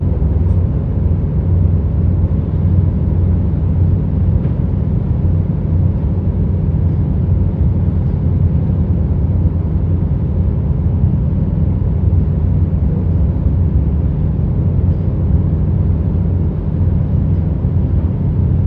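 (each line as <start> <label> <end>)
0.0 A continuous sound of a ship operating on the sea. 18.7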